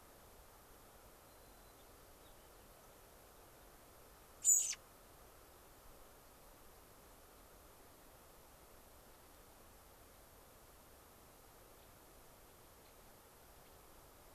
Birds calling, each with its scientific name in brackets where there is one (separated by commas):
American Robin (Turdus migratorius), White-crowned Sparrow (Zonotrichia leucophrys), Gray-crowned Rosy-Finch (Leucosticte tephrocotis)